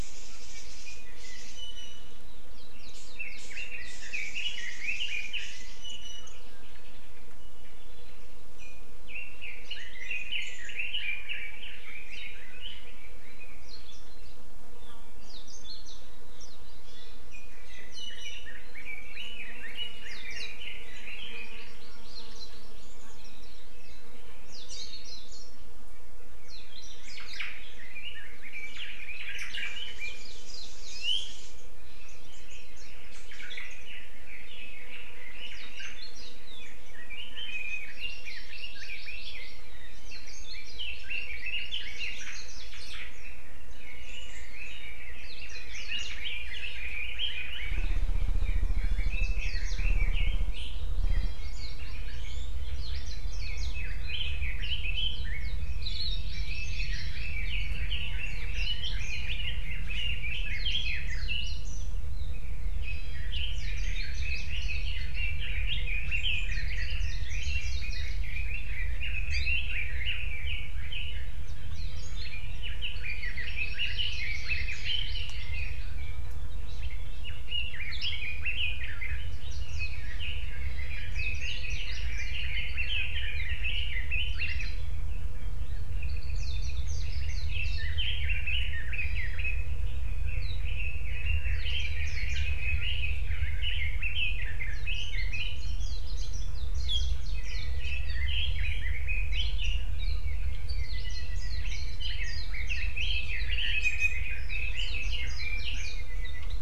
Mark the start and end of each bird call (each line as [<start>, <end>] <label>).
[1.54, 2.24] Iiwi (Drepanis coccinea)
[3.14, 6.34] Red-billed Leiothrix (Leiothrix lutea)
[5.74, 6.34] Iiwi (Drepanis coccinea)
[9.04, 13.74] Red-billed Leiothrix (Leiothrix lutea)
[17.34, 21.74] Red-billed Leiothrix (Leiothrix lutea)
[17.94, 18.44] Iiwi (Drepanis coccinea)
[21.34, 22.74] Hawaii Amakihi (Chlorodrepanis virens)
[26.94, 27.64] Omao (Myadestes obscurus)
[27.74, 30.34] Red-billed Leiothrix (Leiothrix lutea)
[33.34, 33.84] Omao (Myadestes obscurus)
[33.84, 35.94] Red-billed Leiothrix (Leiothrix lutea)
[36.64, 39.54] Red-billed Leiothrix (Leiothrix lutea)
[37.54, 37.84] Iiwi (Drepanis coccinea)
[37.94, 39.64] Hawaii Amakihi (Chlorodrepanis virens)
[40.04, 42.14] Red-billed Leiothrix (Leiothrix lutea)
[40.94, 41.94] Hawaii Amakihi (Chlorodrepanis virens)
[42.54, 43.14] Omao (Myadestes obscurus)
[43.74, 50.84] Red-billed Leiothrix (Leiothrix lutea)
[51.04, 51.44] Iiwi (Drepanis coccinea)
[51.24, 52.44] Hawaii Amakihi (Chlorodrepanis virens)
[53.34, 61.24] Red-billed Leiothrix (Leiothrix lutea)
[55.64, 57.44] Hawaii Amakihi (Chlorodrepanis virens)
[62.84, 63.34] Iiwi (Drepanis coccinea)
[63.34, 71.24] Red-billed Leiothrix (Leiothrix lutea)
[72.14, 76.34] Red-billed Leiothrix (Leiothrix lutea)
[73.14, 75.84] Hawaii Amakihi (Chlorodrepanis virens)
[77.34, 79.34] Red-billed Leiothrix (Leiothrix lutea)
[79.64, 84.64] Red-billed Leiothrix (Leiothrix lutea)
[85.94, 86.74] Apapane (Himatione sanguinea)
[86.94, 89.74] Red-billed Leiothrix (Leiothrix lutea)
[90.04, 95.84] Red-billed Leiothrix (Leiothrix lutea)
[97.34, 99.84] Red-billed Leiothrix (Leiothrix lutea)
[100.74, 101.64] Apapane (Himatione sanguinea)
[102.04, 106.54] Red-billed Leiothrix (Leiothrix lutea)
[103.84, 104.24] Iiwi (Drepanis coccinea)